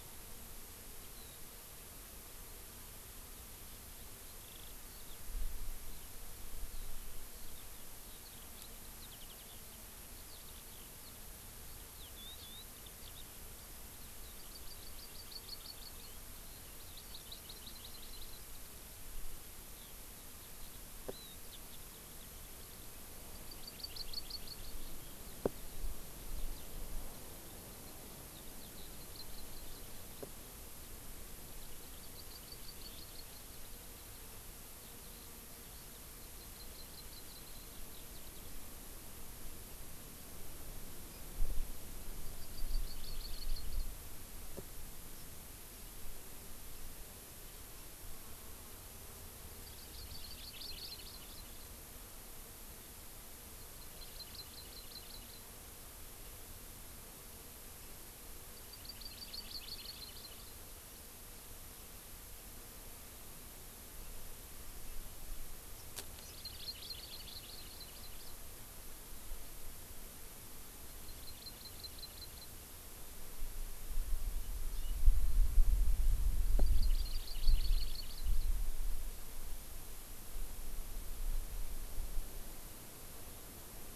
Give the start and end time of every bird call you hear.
[1.20, 1.40] Eurasian Skylark (Alauda arvensis)
[4.30, 11.10] Eurasian Skylark (Alauda arvensis)
[11.70, 14.30] Eurasian Skylark (Alauda arvensis)
[14.30, 16.10] Hawaii Amakihi (Chlorodrepanis virens)
[16.80, 18.60] Hawaii Amakihi (Chlorodrepanis virens)
[19.70, 23.00] Eurasian Skylark (Alauda arvensis)
[23.30, 24.90] Hawaii Amakihi (Chlorodrepanis virens)
[28.30, 29.00] Eurasian Skylark (Alauda arvensis)
[29.00, 29.80] Hawaii Amakihi (Chlorodrepanis virens)
[32.00, 34.20] Hawaii Amakihi (Chlorodrepanis virens)
[34.80, 36.00] Eurasian Skylark (Alauda arvensis)
[36.20, 37.40] Hawaii Amakihi (Chlorodrepanis virens)
[42.20, 43.90] Hawaii Amakihi (Chlorodrepanis virens)
[49.60, 51.70] Hawaii Amakihi (Chlorodrepanis virens)
[53.60, 55.50] Hawaii Amakihi (Chlorodrepanis virens)
[58.60, 60.60] Hawaii Amakihi (Chlorodrepanis virens)
[66.20, 68.30] Hawaii Amakihi (Chlorodrepanis virens)
[70.90, 72.50] Hawaii Amakihi (Chlorodrepanis virens)
[74.70, 74.90] Hawaii Amakihi (Chlorodrepanis virens)
[76.40, 78.50] Hawaii Amakihi (Chlorodrepanis virens)

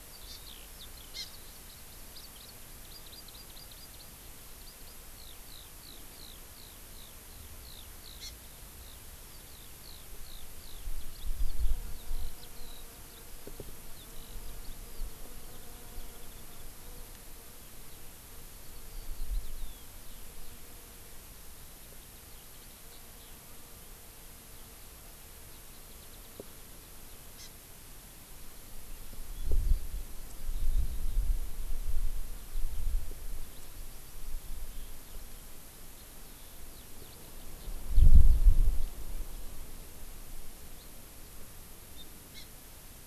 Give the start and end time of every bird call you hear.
[0.00, 2.00] Eurasian Skylark (Alauda arvensis)
[0.30, 0.40] Hawaii Amakihi (Chlorodrepanis virens)
[1.10, 1.30] Hawaii Amakihi (Chlorodrepanis virens)
[2.10, 2.50] Hawaii Amakihi (Chlorodrepanis virens)
[2.80, 4.10] Hawaii Amakihi (Chlorodrepanis virens)
[4.60, 4.90] Hawaii Amakihi (Chlorodrepanis virens)
[5.10, 8.20] Eurasian Skylark (Alauda arvensis)
[8.20, 8.30] Hawaii Amakihi (Chlorodrepanis virens)
[8.80, 9.00] Eurasian Skylark (Alauda arvensis)
[9.50, 20.60] Eurasian Skylark (Alauda arvensis)
[21.50, 23.40] Eurasian Skylark (Alauda arvensis)
[25.90, 26.30] Warbling White-eye (Zosterops japonicus)
[27.30, 27.50] Hawaii Amakihi (Chlorodrepanis virens)
[32.40, 39.00] Eurasian Skylark (Alauda arvensis)
[40.80, 40.90] Hawaii Amakihi (Chlorodrepanis virens)
[41.90, 42.50] Hawaii Amakihi (Chlorodrepanis virens)

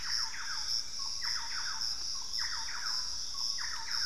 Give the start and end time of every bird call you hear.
[0.00, 2.28] Cinnamon-rumped Foliage-gleaner (Philydor pyrrhodes)
[0.00, 4.06] Thrush-like Wren (Campylorhynchus turdinus)

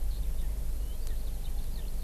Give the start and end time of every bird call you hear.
[0.00, 2.03] Eurasian Skylark (Alauda arvensis)

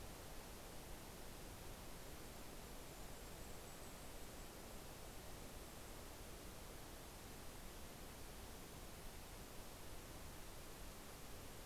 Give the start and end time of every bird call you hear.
[1.95, 6.45] Golden-crowned Kinglet (Regulus satrapa)

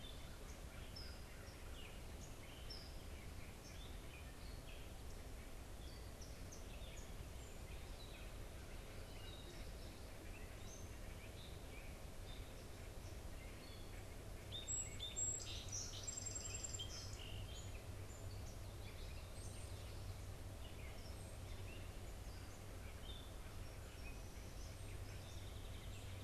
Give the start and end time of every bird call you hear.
[0.10, 26.24] Gray Catbird (Dumetella carolinensis)
[14.30, 17.70] Song Sparrow (Melospiza melodia)
[25.00, 26.24] Song Sparrow (Melospiza melodia)

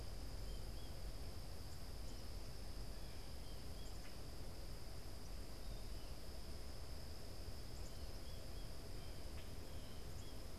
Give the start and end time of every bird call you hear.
[0.00, 10.59] American Goldfinch (Spinus tristis)

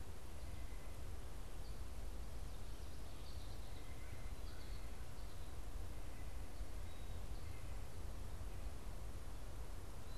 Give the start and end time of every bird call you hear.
[0.00, 10.18] White-breasted Nuthatch (Sitta carolinensis)
[1.41, 10.18] American Goldfinch (Spinus tristis)

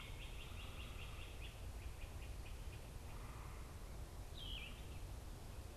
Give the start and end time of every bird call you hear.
[0.00, 3.20] Great Crested Flycatcher (Myiarchus crinitus)
[0.00, 5.77] Yellow-throated Vireo (Vireo flavifrons)

